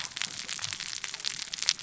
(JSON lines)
{"label": "biophony, cascading saw", "recorder": "SoundTrap 600 or HydroMoth"}